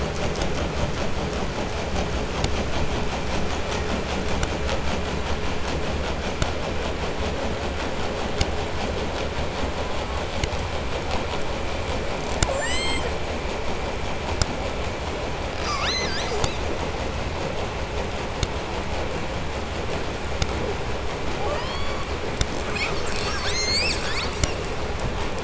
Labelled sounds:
12.2	13.3	killer whale, southern resident, J pod, call S44, 1.1 to 8.0 kHz
15.4	16.7	killer whale, 0.95 to 8.0 kHz
21.3	22.4	killer whale, southern resident, J pod, call S44, 0.35 to 8.0 kHz
22.5	24.8	killer whale, 0.80 to 8.0 kHz

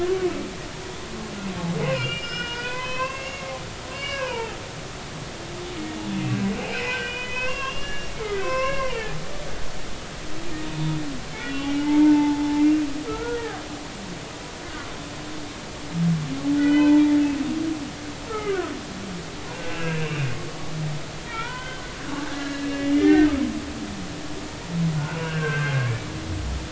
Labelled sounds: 1.8	3.5	humpback whale, 0.96 to 6.7 kHz
3.9	4.6	humpback whale, 0.80 to 5.2 kHz
6.2	10.0	humpback whale, 0.86 to 3.4 kHz
10.6	11.0	humpback whale, 0.90 to 3.6 kHz
11.3	12.4	humpback whale, 0.83 to 3.5 kHz
13.1	13.6	humpback whale, 1.2 to 1.9 kHz
14.8	15.0	humpback whale, 0.99 to 1.2 kHz
16.6	17.0	humpback whale, 0.83 to 2.6 kHz
18.3	18.7	humpback whale, 0.96 to 1.7 kHz
19.5	20.3	humpback whale, 2.5 to 2.8 kHz
21.2	23.3	humpback whale, 0.86 to 3.2 kHz
25.0	26.1	humpback whale, 0.86 to 2.8 kHz

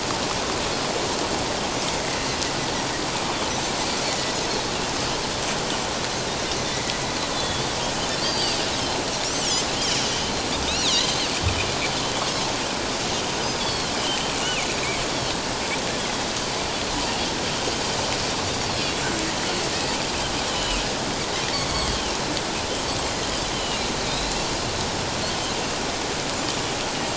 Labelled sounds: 6.7	7.6	Pacific white-sided dolphin, 1.9 to 3.6 kHz
8.2	9.5	Pacific white-sided dolphin, 2.4 to 7.9 kHz
10.0	11.1	Pacific white-sided dolphin, 2.8 to 6.4 kHz
13.6	13.9	Pacific white-sided dolphin, 4.0 to 4.6 kHz
14.7	14.9	Pacific white-sided dolphin, 3.8 to 4.0 kHz
19.4	19.7	Pacific white-sided dolphin, 4.1 to 4.4 kHz
20.5	20.8	Pacific white-sided dolphin, 2.7 to 3.2 kHz
21.7	22.2	Pacific white-sided dolphin, 2.7 to 3.4 kHz
23.5	24.3	Pacific white-sided dolphin, 2.8 to 4.1 kHz

